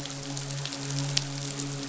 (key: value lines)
label: biophony, midshipman
recorder: SoundTrap 500